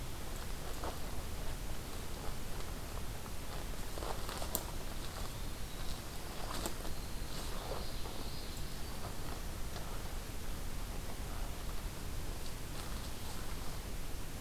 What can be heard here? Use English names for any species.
Winter Wren